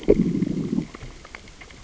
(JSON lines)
{"label": "biophony, growl", "recorder": "SoundTrap 600 or HydroMoth"}